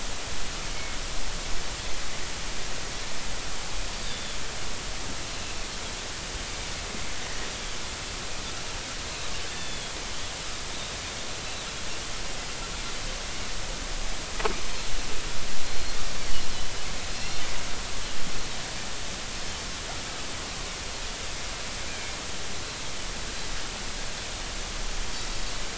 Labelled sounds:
0.7	1.0	Pacific white-sided dolphin, 2.1 to 2.3 kHz
4.0	4.4	Pacific white-sided dolphin, 3.3 to 3.8 kHz
9.5	9.9	Pacific white-sided dolphin, 3.2 to 3.6 kHz
11.4	11.6	Pacific white-sided dolphin, 3.9 to 4.1 kHz
15.7	16.0	Pacific white-sided dolphin, 4.1 to 4.4 kHz
17.2	17.4	Pacific white-sided dolphin, 4.2 to 4.3 kHz

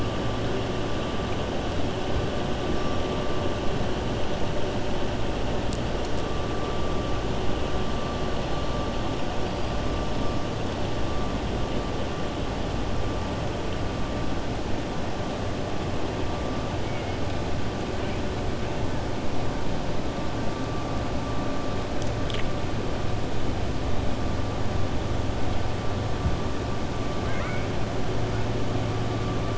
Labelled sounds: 27.2	27.7	killer whale, 1.0 to 3.2 kHz

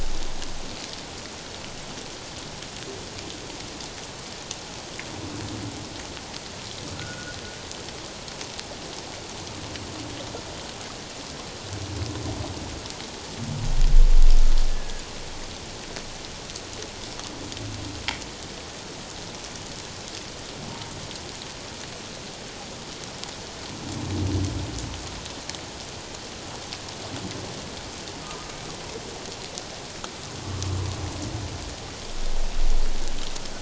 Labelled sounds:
6.9	7.4	humpback whale, 1.3 to 1.5 kHz
14.7	15.1	humpback whale, 1.5 to 1.8 kHz

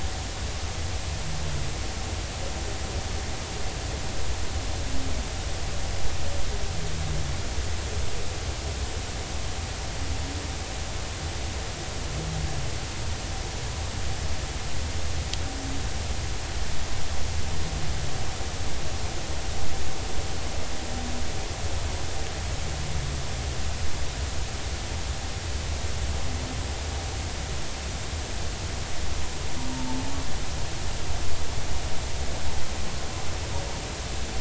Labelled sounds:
29.7	30.0	humpback whale, 0.83 to 0.96 kHz

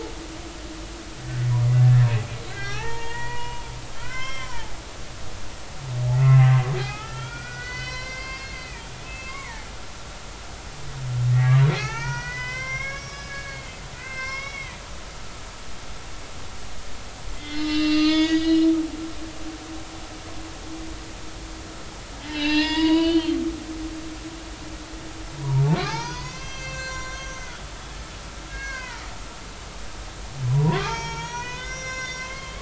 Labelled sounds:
0.7	2.1	humpback whale, 1.7 to 4.3 kHz
2.5	4.7	humpback whale, 0.80 to 5.4 kHz
6.1	9.7	humpback whale, 0.80 to 6.7 kHz
11.7	14.8	humpback whale, 0.80 to 6.2 kHz
17.3	18.7	humpback whale, 1.2 to 6.5 kHz
22.2	23.4	humpback whale, 0.86 to 5.2 kHz
25.8	28.0	humpback whale, 0.80 to 7.4 kHz
28.5	29.0	humpback whale, 0.86 to 4.4 kHz
30.5	32.6	humpback whale, 0.80 to 6.8 kHz

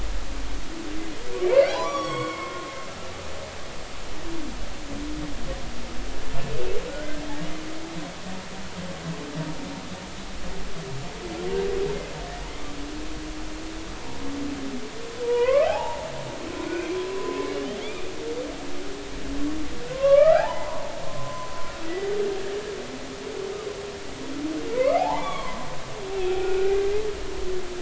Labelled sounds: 1.7	2.7	humpback whale, 0.80 to 7.9 kHz
6.9	7.2	humpback whale, 1.4 to 1.6 kHz
15.2	16.1	humpback whale, 0.80 to 2.7 kHz
16.6	17.5	humpback whale, 0.99 to 2.5 kHz
17.8	18.1	humpback whale, 2.1 to 2.5 kHz
19.9	21.5	humpback whale, 0.80 to 2.0 kHz
21.8	22.1	humpback whale, 1.9 to 2.0 kHz
24.7	25.6	humpback whale, 0.80 to 3.5 kHz
26.3	26.7	humpback whale, 1.3 to 1.6 kHz

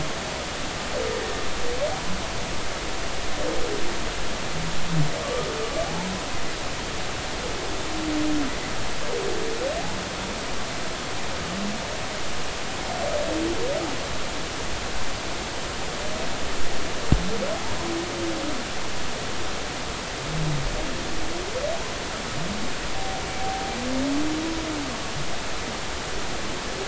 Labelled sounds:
5.2	5.5	humpback whale, 1.0 to 1.3 kHz
5.8	6.1	humpback whale, 0.80 to 1.0 kHz
23.4	23.8	humpback whale, 0.80 to 0.83 kHz

